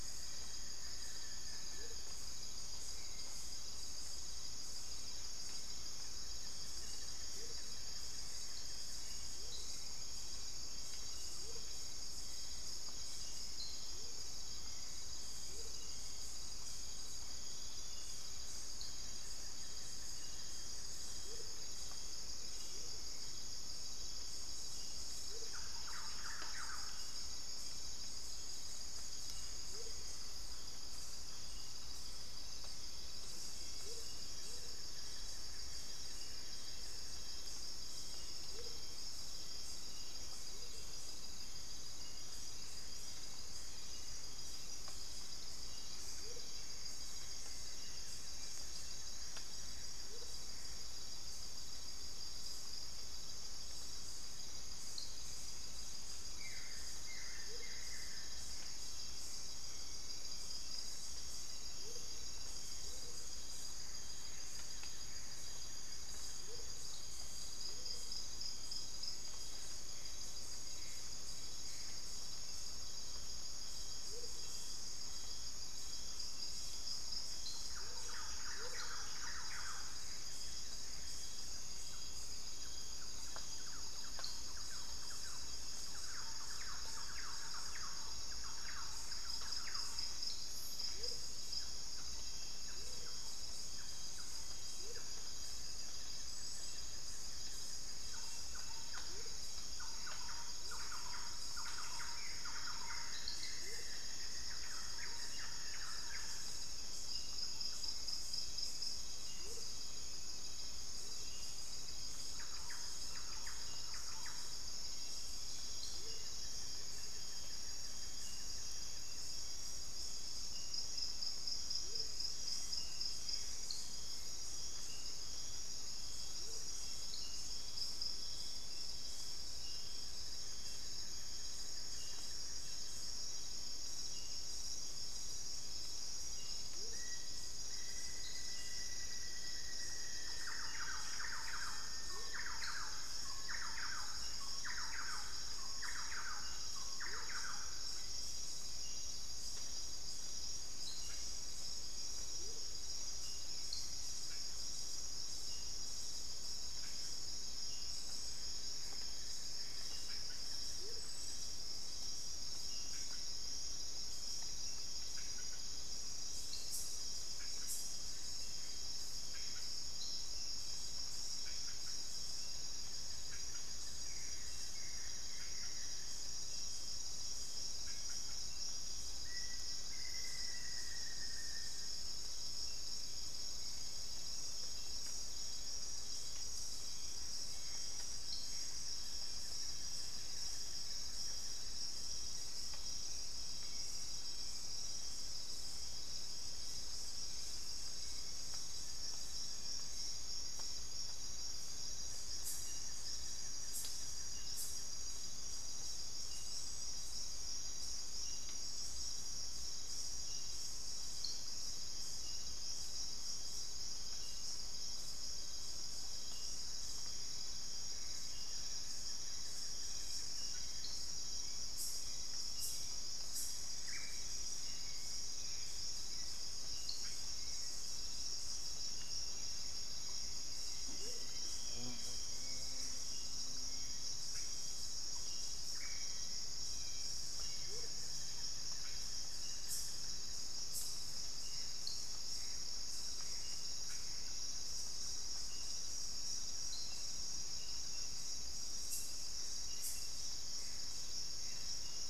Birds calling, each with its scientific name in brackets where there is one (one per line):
Hauxwell's Thrush (Turdus hauxwelli)
Buff-throated Woodcreeper (Xiphorhynchus guttatus)
Gray Antbird (Cercomacra cinerascens)
Amazonian Motmot (Momotus momota)
unidentified bird
Thrush-like Wren (Campylorhynchus turdinus)
Black-faced Antthrush (Formicarius analis)